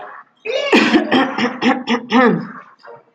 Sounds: Throat clearing